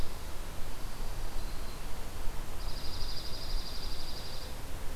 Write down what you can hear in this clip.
Dark-eyed Junco